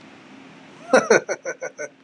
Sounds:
Laughter